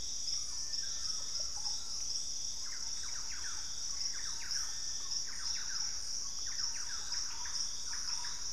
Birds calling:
Thrush-like Wren (Campylorhynchus turdinus), Russet-backed Oropendola (Psarocolius angustifrons), Collared Trogon (Trogon collaris)

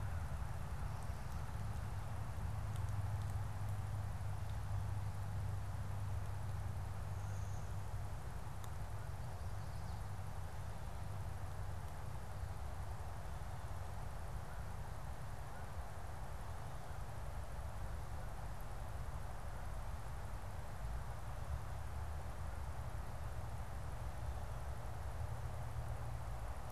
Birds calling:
American Goldfinch (Spinus tristis), American Crow (Corvus brachyrhynchos)

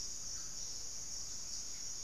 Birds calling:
unidentified bird

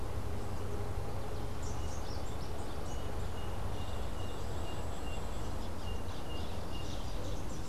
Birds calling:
Rufous-capped Warbler (Basileuterus rufifrons), Melodious Blackbird (Dives dives)

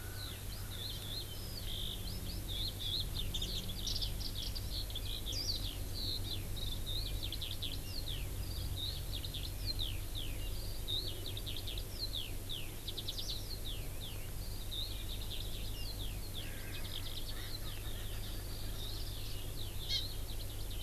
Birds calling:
Warbling White-eye (Zosterops japonicus), Eurasian Skylark (Alauda arvensis), Erckel's Francolin (Pternistis erckelii), Hawaii Amakihi (Chlorodrepanis virens)

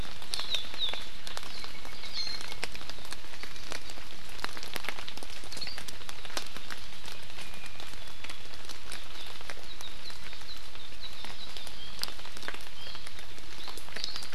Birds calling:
Hawaii Akepa (Loxops coccineus), Warbling White-eye (Zosterops japonicus), Apapane (Himatione sanguinea)

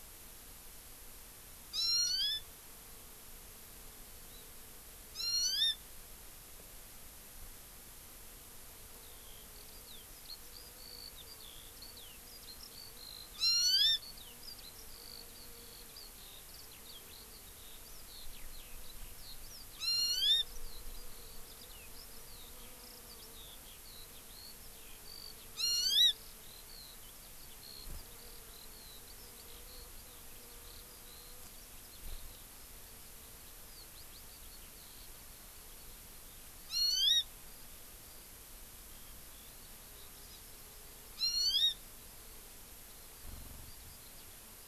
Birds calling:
Hawaii Amakihi (Chlorodrepanis virens), Eurasian Skylark (Alauda arvensis)

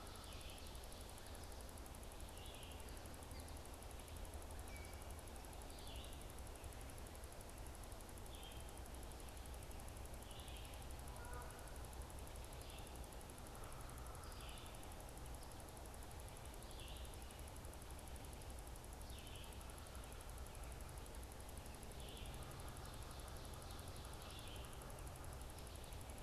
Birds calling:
Red-eyed Vireo (Vireo olivaceus), Ovenbird (Seiurus aurocapilla), Canada Goose (Branta canadensis)

